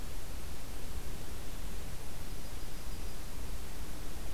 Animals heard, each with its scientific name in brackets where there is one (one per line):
Yellow-rumped Warbler (Setophaga coronata)